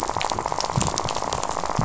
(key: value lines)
label: biophony, rattle
recorder: SoundTrap 500